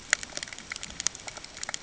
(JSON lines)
{"label": "ambient", "recorder": "HydroMoth"}